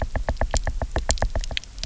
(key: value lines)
label: biophony, knock
recorder: SoundTrap 300